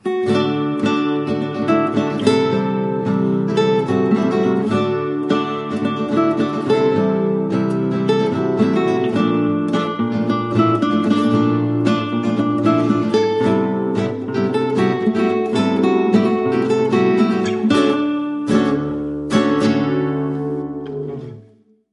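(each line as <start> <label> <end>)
0.0 A soft classical guitar note with a gentle, clean tone. 4.7
0.0 Classical guitar plays a soft fingerpicking outro with a mellow, smooth, and expressive tone. 21.7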